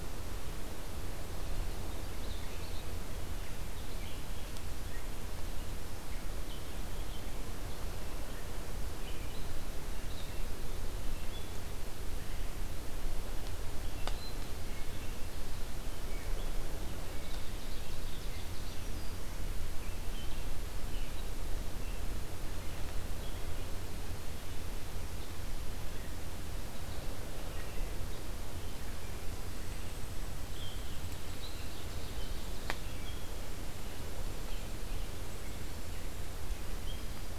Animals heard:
Black-capped Chickadee (Poecile atricapillus), Ovenbird (Seiurus aurocapilla), Black-throated Green Warbler (Setophaga virens), Red-eyed Vireo (Vireo olivaceus)

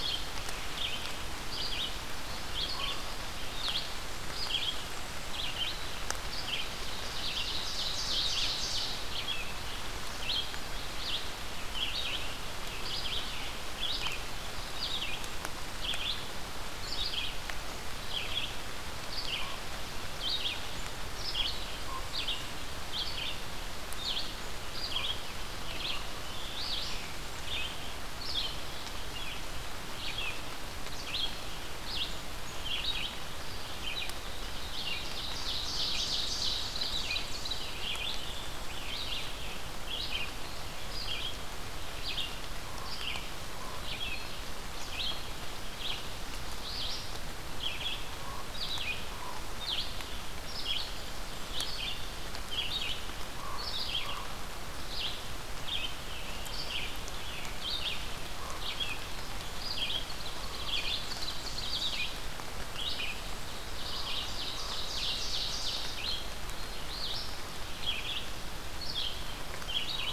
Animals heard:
Common Raven (Corvus corax), Red-eyed Vireo (Vireo olivaceus), Ovenbird (Seiurus aurocapilla), Blackburnian Warbler (Setophaga fusca), Scarlet Tanager (Piranga olivacea)

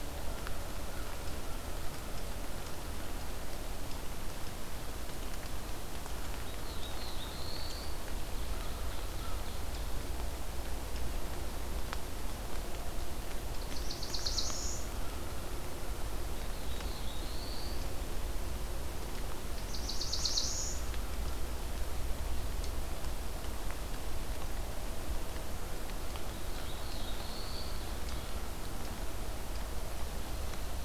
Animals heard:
Black-throated Blue Warbler (Setophaga caerulescens), Ovenbird (Seiurus aurocapilla), American Crow (Corvus brachyrhynchos)

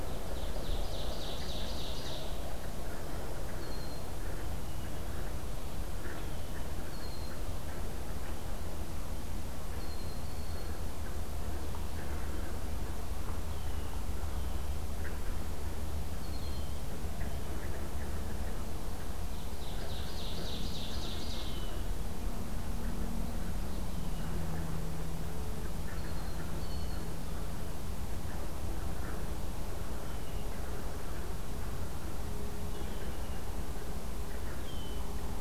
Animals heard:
Red-winged Blackbird (Agelaius phoeniceus), Ovenbird (Seiurus aurocapilla)

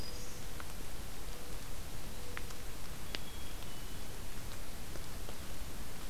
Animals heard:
Mourning Dove (Zenaida macroura), Black-capped Chickadee (Poecile atricapillus), Black-throated Green Warbler (Setophaga virens)

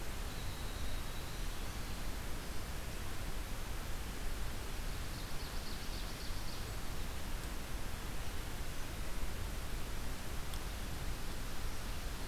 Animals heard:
Ovenbird (Seiurus aurocapilla), Winter Wren (Troglodytes hiemalis)

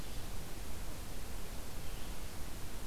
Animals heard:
Red-eyed Vireo (Vireo olivaceus)

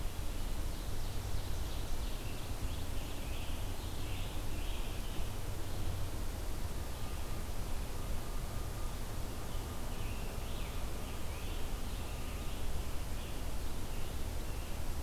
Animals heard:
Ovenbird (Seiurus aurocapilla), Scarlet Tanager (Piranga olivacea)

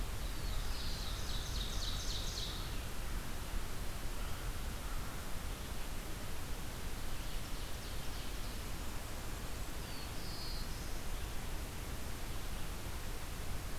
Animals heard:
Ovenbird (Seiurus aurocapilla), Black-throated Blue Warbler (Setophaga caerulescens), American Crow (Corvus brachyrhynchos), Red-eyed Vireo (Vireo olivaceus)

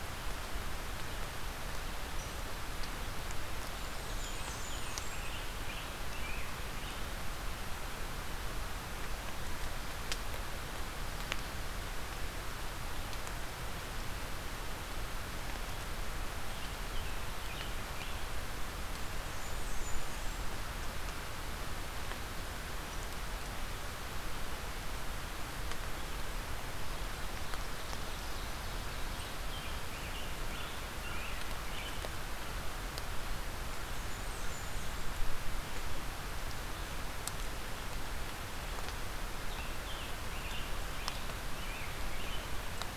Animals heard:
Blackburnian Warbler (Setophaga fusca), American Robin (Turdus migratorius)

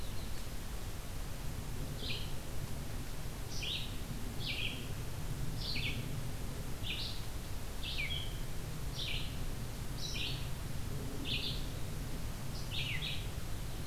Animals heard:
Red-eyed Vireo (Vireo olivaceus), Yellow-rumped Warbler (Setophaga coronata)

